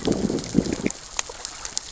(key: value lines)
label: biophony, growl
recorder: SoundTrap 600 or HydroMoth